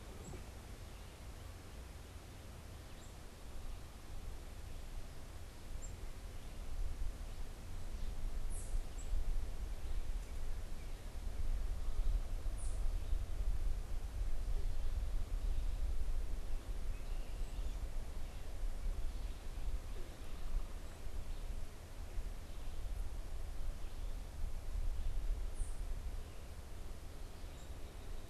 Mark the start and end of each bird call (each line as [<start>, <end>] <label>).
[0.00, 9.10] Black-capped Chickadee (Poecile atricapillus)